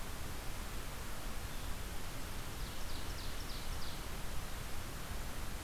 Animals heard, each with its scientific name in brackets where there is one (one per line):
Ovenbird (Seiurus aurocapilla)